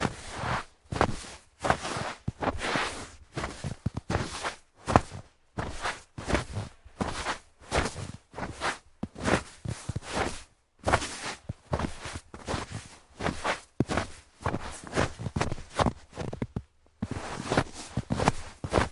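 Fast, uneven footsteps crunch through the snow with hurried, forceful impacts. 0:00.0 - 0:18.9

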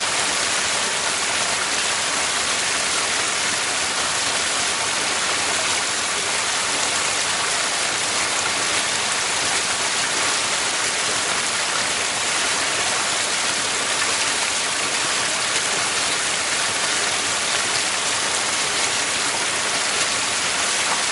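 A river flowing. 0:00.8 - 0:20.3

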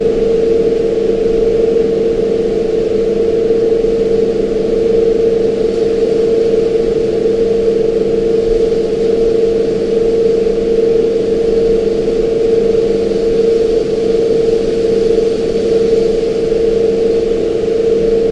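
An industrial humming and rapidly fluttering sound, as if rotating. 0:00.1 - 0:18.3

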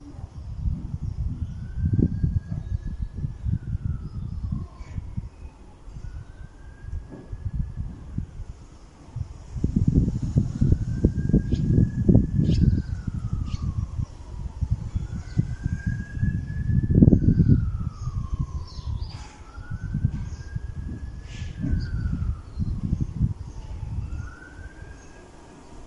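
Wind blowing steadily. 0:00.0 - 0:25.8
A siren rings in the distance, slowly approaching. 0:00.0 - 0:25.9

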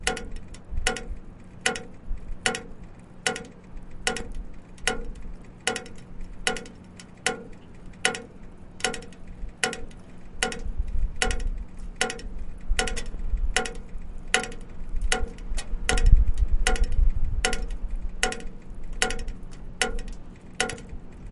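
A metal drainpipe drips softly outdoors. 0:00.1 - 0:21.3

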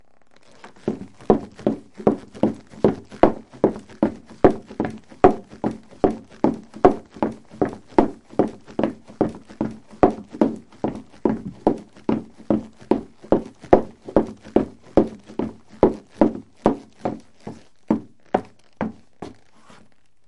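Footsteps of a single person walking quickly on a hard surface. 0:00.0 - 0:20.3

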